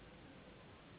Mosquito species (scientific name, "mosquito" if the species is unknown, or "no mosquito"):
Anopheles gambiae s.s.